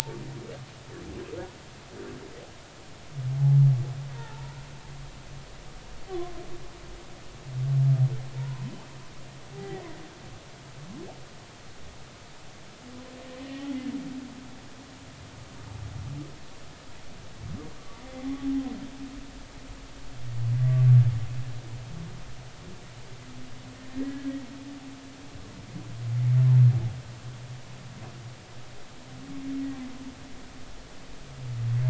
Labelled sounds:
1.0	1.4	humpback whale, 0.83 to 0.99 kHz
4.1	4.6	humpback whale, 0.83 to 1.5 kHz
8.4	8.7	humpback whale, 0.90 to 1.1 kHz
9.5	9.8	humpback whale, 0.80 to 2.0 kHz
13.4	13.7	humpback whale, 1.8 to 3.2 kHz
24.1	24.3	humpback whale, 1.6 to 1.8 kHz

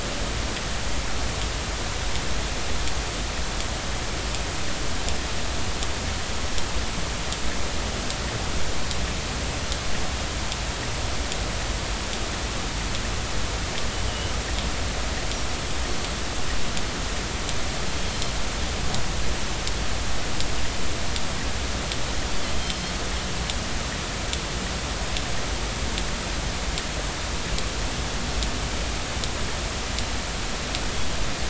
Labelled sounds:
14.1	14.3	Pacific white-sided dolphin, 2.8 to 3.2 kHz
18.1	18.3	Pacific white-sided dolphin, 4.1 to 4.3 kHz

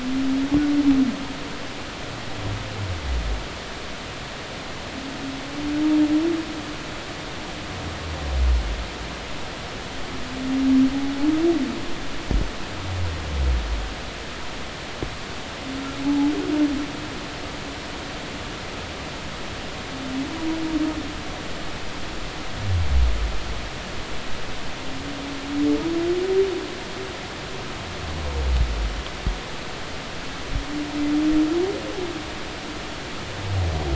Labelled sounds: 16.0	16.3	humpback whale, 0.80 to 0.90 kHz

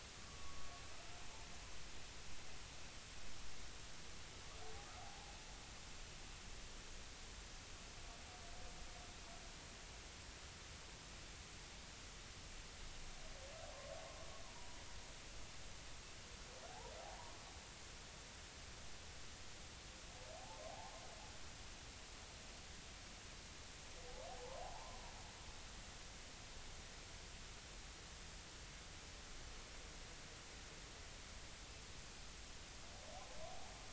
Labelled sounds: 0.2	0.7	humpback whale, 1.0 to 1.2 kHz
5.0	5.3	humpback whale, 0.80 to 0.90 kHz
14.5	14.8	humpback whale, 0.90 to 1.0 kHz
17.0	17.4	humpback whale, 0.80 to 1.1 kHz
20.4	20.9	humpback whale, 0.80 to 0.93 kHz
24.3	25.0	humpback whale, 0.80 to 1.1 kHz

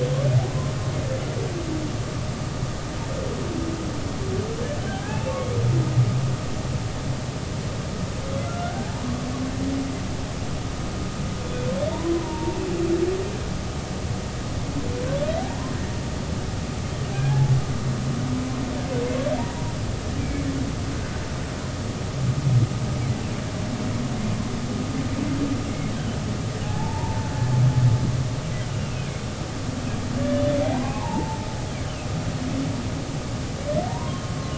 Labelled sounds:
4.9	5.4	humpback whale, 0.80 to 2.8 kHz
8.4	9.2	humpback whale, 0.80 to 1.6 kHz
12.2	12.6	humpback whale, 0.86 to 0.99 kHz
16.4	17.5	humpback whale, 0.80 to 1.7 kHz
19.4	20.5	humpback whale, 0.86 to 2.4 kHz
26.6	27.3	humpback whale, 0.80 to 0.99 kHz
28.8	29.1	humpback whale, 2.4 to 2.8 kHz
30.6	31.4	humpback whale, 0.80 to 1.1 kHz
33.9	34.5	humpback whale, 0.90 to 3.3 kHz

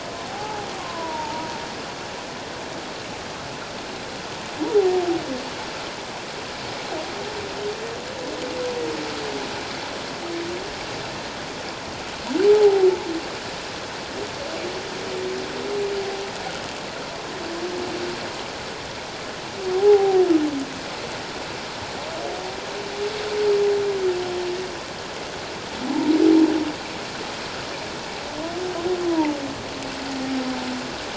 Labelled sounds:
0.3	1.5	humpback whale, 0.78 to 1.2 kHz
12.5	12.9	humpback whale, 0.78 to 0.88 kHz
19.7	20.2	humpback whale, 0.78 to 0.97 kHz
29.1	29.4	humpback whale, 0.84 to 1.0 kHz

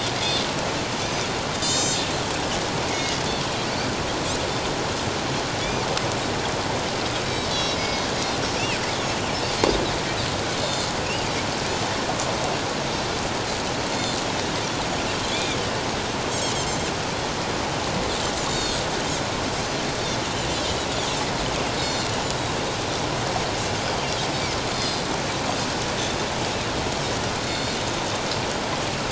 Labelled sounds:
1.6	2.1	Pacific white-sided dolphin, 2.9 to 8.0 kHz
2.9	3.2	Pacific white-sided dolphin, 1.9 to 6.6 kHz
5.6	5.9	Pacific white-sided dolphin, 2.2 to 2.5 kHz
7.5	8.1	Pacific white-sided dolphin, 2.1 to 5.8 kHz
8.4	8.7	Pacific white-sided dolphin, 5.3 to 6.0 kHz
9.4	9.7	Pacific white-sided dolphin, 4.1 to 4.7 kHz
10.6	10.9	Pacific white-sided dolphin, 4.2 to 4.4 kHz
13.9	14.2	Pacific white-sided dolphin, 4.2 to 4.4 kHz
15.3	15.6	Pacific white-sided dolphin, 2.2 to 3.8 kHz
16.4	16.7	Pacific white-sided dolphin, 6.2 to 6.6 kHz
18.5	18.8	Pacific white-sided dolphin, 3.5 to 6.8 kHz
20.5	20.8	Pacific white-sided dolphin, 3.1 to 3.6 kHz
21.7	22.1	Pacific white-sided dolphin, 3.6 to 7.4 kHz
24.7	25.0	Pacific white-sided dolphin, 4.1 to 5.0 kHz
27.4	27.7	Pacific white-sided dolphin, 3.5 to 7.3 kHz

